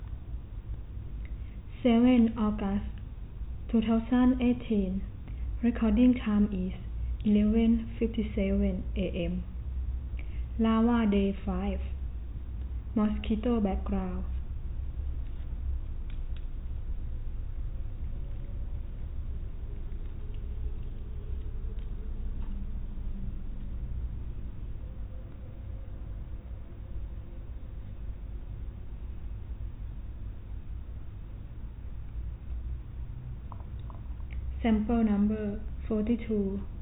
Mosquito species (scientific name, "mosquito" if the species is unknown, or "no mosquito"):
no mosquito